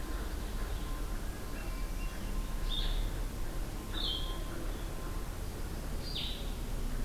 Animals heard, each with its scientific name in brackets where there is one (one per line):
Blue-headed Vireo (Vireo solitarius)
Hermit Thrush (Catharus guttatus)